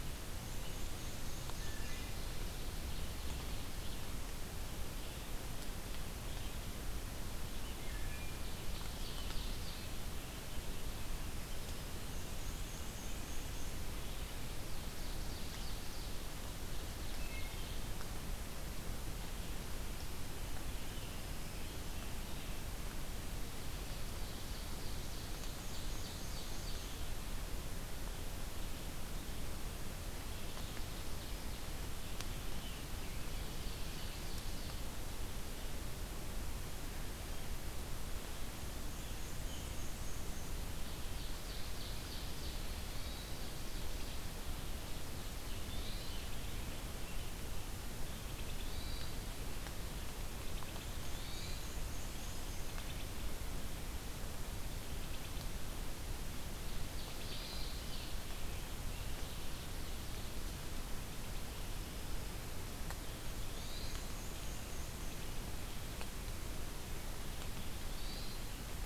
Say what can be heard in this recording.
Black-and-white Warbler, Wood Thrush, Ovenbird, American Robin, Black-throated Green Warbler, Hermit Thrush